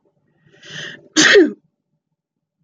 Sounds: Sneeze